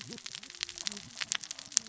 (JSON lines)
{"label": "biophony, cascading saw", "recorder": "SoundTrap 600 or HydroMoth"}